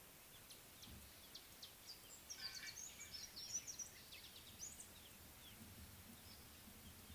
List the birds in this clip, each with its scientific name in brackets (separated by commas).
Amethyst Sunbird (Chalcomitra amethystina)